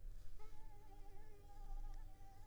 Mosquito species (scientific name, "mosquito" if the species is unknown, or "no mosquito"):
Anopheles squamosus